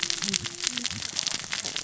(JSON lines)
{"label": "biophony, cascading saw", "recorder": "SoundTrap 600 or HydroMoth"}